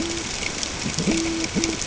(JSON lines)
{"label": "ambient", "recorder": "HydroMoth"}